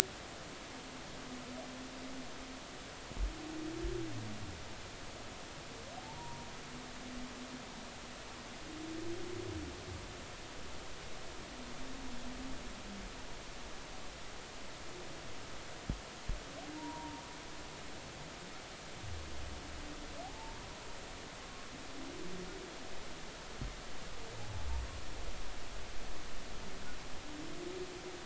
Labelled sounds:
6.0	6.5	humpback whale, 0.83 to 1.0 kHz
16.8	17.2	humpback whale, 0.86 to 1.1 kHz
20.2	20.6	humpback whale, 0.80 to 0.96 kHz

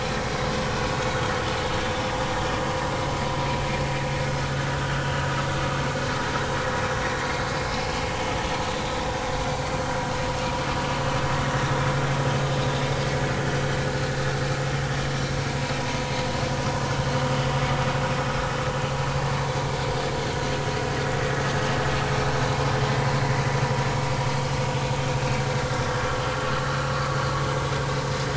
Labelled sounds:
25.6	25.9	vessel noise, 1.3 to 1.4 kHz
26.8	27.0	vessel noise, 4.0 to 4.3 kHz

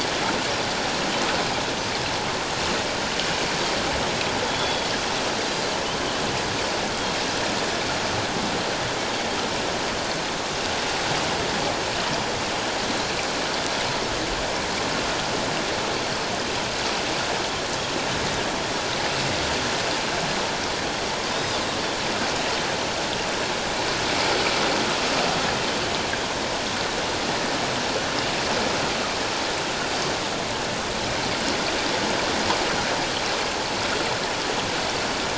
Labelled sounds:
4.5	4.9	Pacific white-sided dolphin, 3.3 to 3.5 kHz

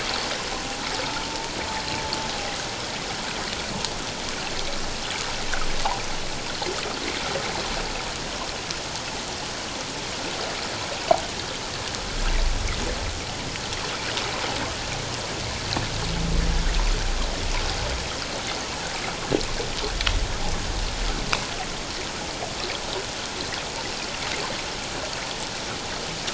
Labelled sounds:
1.3	1.5	humpback whale, 0.88 to 0.97 kHz

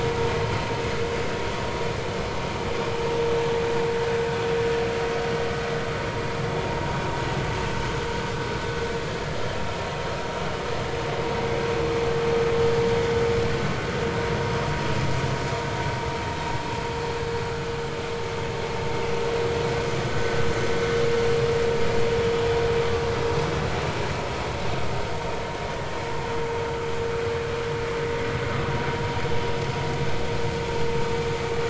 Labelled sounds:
20.1	20.4	vessel noise, 1.47 to 1.54 kHz

